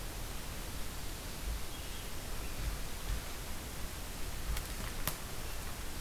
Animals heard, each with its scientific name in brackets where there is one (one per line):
American Robin (Turdus migratorius)